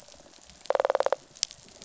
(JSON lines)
{"label": "biophony, rattle response", "recorder": "SoundTrap 500"}